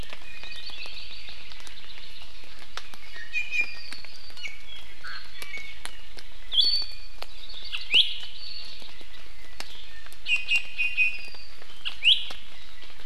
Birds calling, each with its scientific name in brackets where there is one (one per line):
Hawaii Creeper (Loxops mana)
Iiwi (Drepanis coccinea)